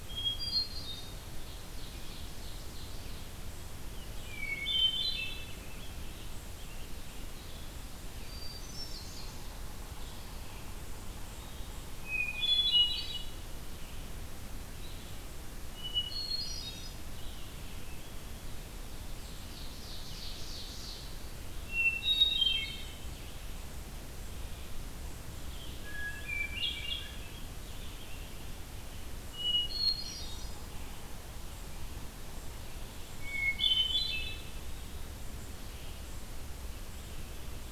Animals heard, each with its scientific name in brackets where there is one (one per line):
Hermit Thrush (Catharus guttatus)
Ovenbird (Seiurus aurocapilla)
Scarlet Tanager (Piranga olivacea)
Red-eyed Vireo (Vireo olivaceus)